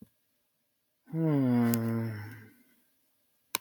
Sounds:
Sigh